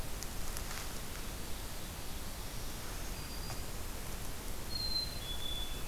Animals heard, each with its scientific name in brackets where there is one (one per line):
Black-throated Green Warbler (Setophaga virens)
Black-capped Chickadee (Poecile atricapillus)
Ovenbird (Seiurus aurocapilla)